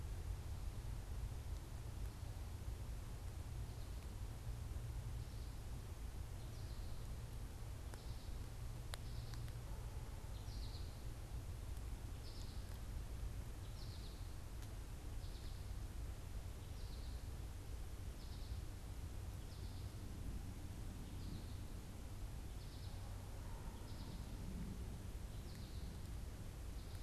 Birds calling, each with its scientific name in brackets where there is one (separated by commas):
American Goldfinch (Spinus tristis)